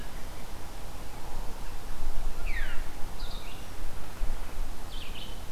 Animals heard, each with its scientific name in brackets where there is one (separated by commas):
Red-eyed Vireo (Vireo olivaceus), Veery (Catharus fuscescens)